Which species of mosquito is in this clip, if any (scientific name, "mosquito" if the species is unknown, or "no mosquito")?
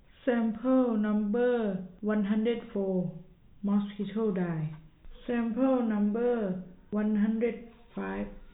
no mosquito